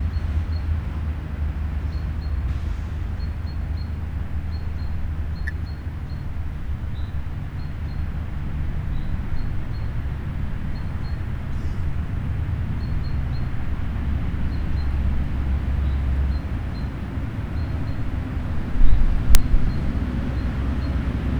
What animal is heard?
bird